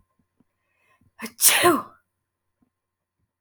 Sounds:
Sneeze